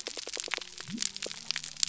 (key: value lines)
label: biophony
recorder: SoundTrap 300